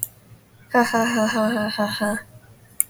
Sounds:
Laughter